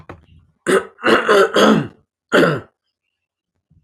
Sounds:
Throat clearing